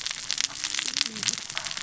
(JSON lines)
{"label": "biophony, cascading saw", "recorder": "SoundTrap 600 or HydroMoth"}